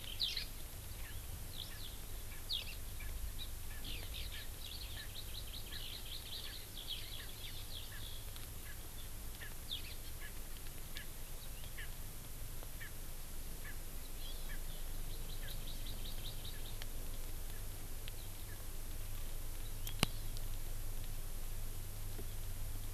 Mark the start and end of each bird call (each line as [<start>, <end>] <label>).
[0.18, 0.48] Eurasian Skylark (Alauda arvensis)
[1.48, 1.88] Eurasian Skylark (Alauda arvensis)
[1.68, 1.78] Erckel's Francolin (Pternistis erckelii)
[2.28, 2.38] Erckel's Francolin (Pternistis erckelii)
[2.48, 2.68] Eurasian Skylark (Alauda arvensis)
[2.98, 3.08] Erckel's Francolin (Pternistis erckelii)
[3.38, 3.48] Hawaii Amakihi (Chlorodrepanis virens)
[3.68, 3.78] Erckel's Francolin (Pternistis erckelii)
[3.88, 8.38] Eurasian Skylark (Alauda arvensis)
[4.38, 4.48] Erckel's Francolin (Pternistis erckelii)
[4.68, 6.48] Hawaii Amakihi (Chlorodrepanis virens)
[4.98, 5.08] Erckel's Francolin (Pternistis erckelii)
[5.68, 5.78] Erckel's Francolin (Pternistis erckelii)
[7.18, 7.28] Erckel's Francolin (Pternistis erckelii)
[7.88, 7.98] Erckel's Francolin (Pternistis erckelii)
[8.68, 8.78] Erckel's Francolin (Pternistis erckelii)
[9.38, 9.48] Erckel's Francolin (Pternistis erckelii)
[10.18, 10.28] Erckel's Francolin (Pternistis erckelii)
[10.98, 11.08] Erckel's Francolin (Pternistis erckelii)
[11.78, 11.88] Erckel's Francolin (Pternistis erckelii)
[12.78, 12.88] Erckel's Francolin (Pternistis erckelii)
[13.68, 13.78] Erckel's Francolin (Pternistis erckelii)
[14.18, 14.58] Hawaii Amakihi (Chlorodrepanis virens)
[14.48, 14.58] Erckel's Francolin (Pternistis erckelii)
[15.08, 16.78] Hawaii Amakihi (Chlorodrepanis virens)
[19.58, 20.38] Hawaii Amakihi (Chlorodrepanis virens)